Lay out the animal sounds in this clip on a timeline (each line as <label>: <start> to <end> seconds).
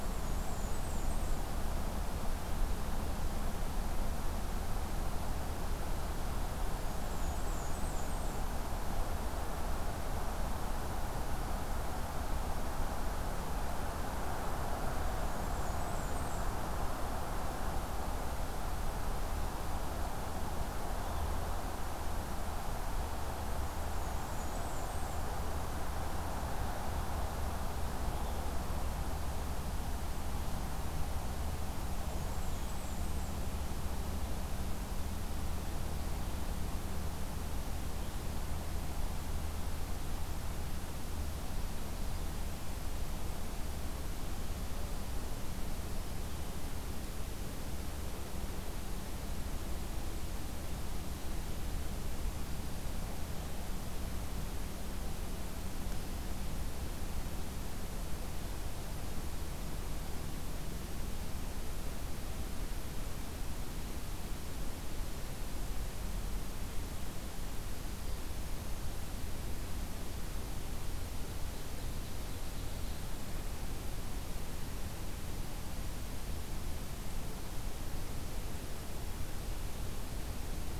Blackburnian Warbler (Setophaga fusca): 0.0 to 1.5 seconds
Blackburnian Warbler (Setophaga fusca): 7.1 to 8.5 seconds
Blackburnian Warbler (Setophaga fusca): 15.3 to 16.6 seconds
Blackburnian Warbler (Setophaga fusca): 24.3 to 25.3 seconds
Blackburnian Warbler (Setophaga fusca): 32.0 to 33.4 seconds
Ovenbird (Seiurus aurocapilla): 71.5 to 73.1 seconds